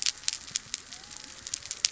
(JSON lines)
{"label": "biophony", "recorder": "SoundTrap 300"}